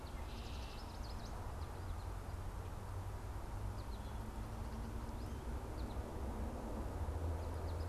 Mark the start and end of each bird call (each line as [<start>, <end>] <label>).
[0.00, 7.89] American Goldfinch (Spinus tristis)
[0.20, 1.00] Red-winged Blackbird (Agelaius phoeniceus)